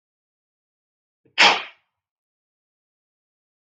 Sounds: Sneeze